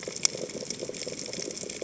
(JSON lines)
{"label": "biophony, chatter", "recorder": "HydroMoth"}